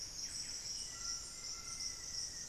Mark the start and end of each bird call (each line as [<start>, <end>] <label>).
[0.00, 2.48] Buff-breasted Wren (Cantorchilus leucotis)
[0.00, 2.48] Golden-crowned Spadebill (Platyrinchus coronatus)
[0.00, 2.48] White-throated Toucan (Ramphastos tucanus)
[0.58, 2.48] Black-faced Antthrush (Formicarius analis)